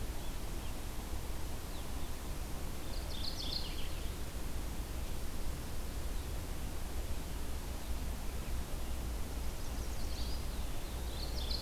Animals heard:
Eastern Wood-Pewee (Contopus virens), Red-eyed Vireo (Vireo olivaceus), Mourning Warbler (Geothlypis philadelphia), Chestnut-sided Warbler (Setophaga pensylvanica)

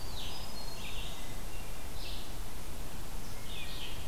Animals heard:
Hermit Thrush (Catharus guttatus), Red-eyed Vireo (Vireo olivaceus), Scarlet Tanager (Piranga olivacea)

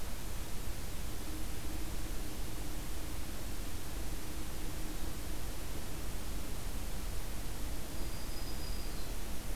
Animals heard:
Black-throated Green Warbler (Setophaga virens)

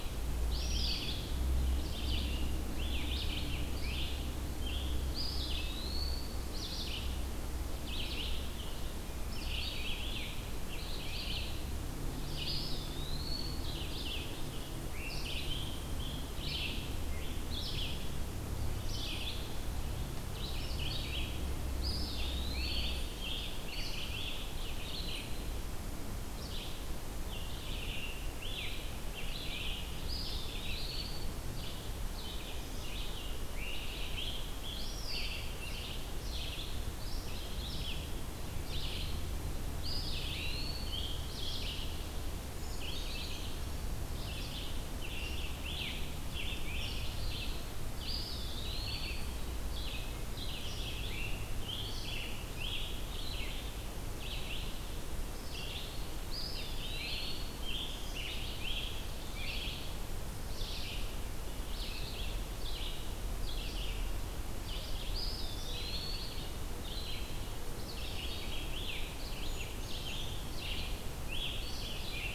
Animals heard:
Red-eyed Vireo (Vireo olivaceus), Brown Creeper (Certhia americana), Scarlet Tanager (Piranga olivacea), Blackpoll Warbler (Setophaga striata), Eastern Wood-Pewee (Contopus virens)

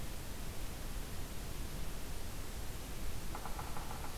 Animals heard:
Yellow-bellied Sapsucker (Sphyrapicus varius)

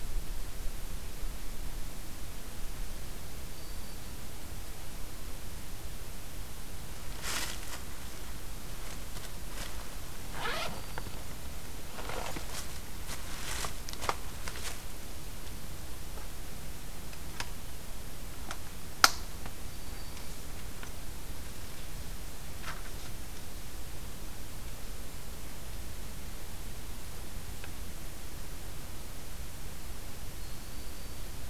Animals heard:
Black-throated Green Warbler (Setophaga virens)

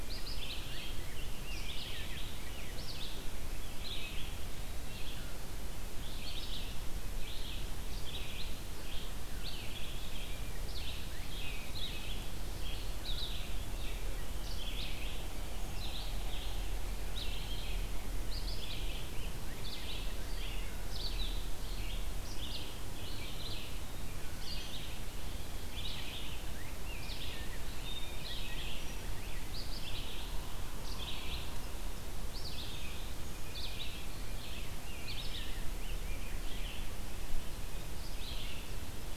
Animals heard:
Rose-breasted Grosbeak (Pheucticus ludovicianus), Red-eyed Vireo (Vireo olivaceus)

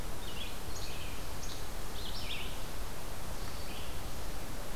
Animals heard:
Least Flycatcher (Empidonax minimus), Red-eyed Vireo (Vireo olivaceus)

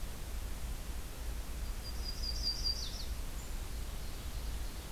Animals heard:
Ovenbird (Seiurus aurocapilla), Yellow-rumped Warbler (Setophaga coronata)

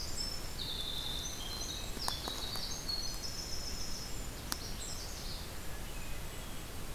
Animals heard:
Golden-crowned Kinglet (Regulus satrapa), Winter Wren (Troglodytes hiemalis), Hermit Thrush (Catharus guttatus), Magnolia Warbler (Setophaga magnolia)

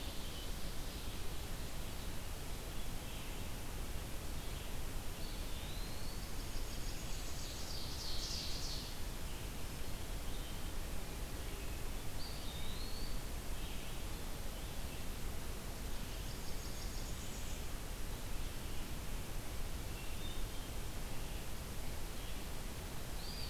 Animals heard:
Blackburnian Warbler (Setophaga fusca), Hermit Thrush (Catharus guttatus), Red-eyed Vireo (Vireo olivaceus), Eastern Wood-Pewee (Contopus virens), Ovenbird (Seiurus aurocapilla)

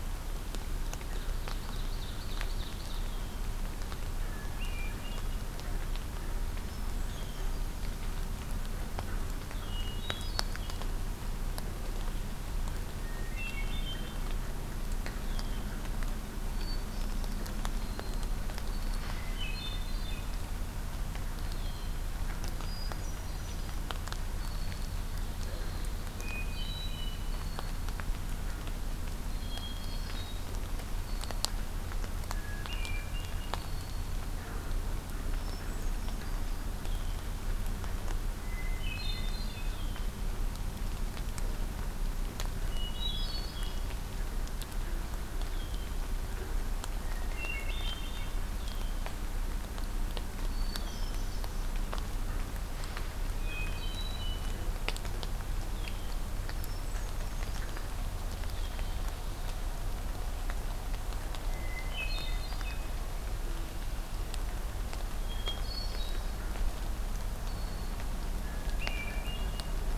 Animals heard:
Ovenbird (Seiurus aurocapilla), Hermit Thrush (Catharus guttatus), Red-winged Blackbird (Agelaius phoeniceus)

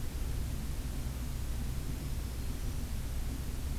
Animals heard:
Black-throated Green Warbler (Setophaga virens)

